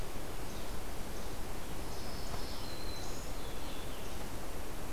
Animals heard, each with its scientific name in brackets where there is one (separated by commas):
Least Flycatcher (Empidonax minimus), Red-eyed Vireo (Vireo olivaceus), Black-throated Green Warbler (Setophaga virens)